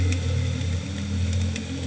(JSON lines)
{"label": "anthrophony, boat engine", "recorder": "HydroMoth"}